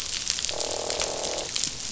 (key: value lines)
label: biophony, croak
recorder: SoundTrap 500